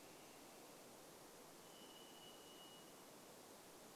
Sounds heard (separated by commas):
Varied Thrush song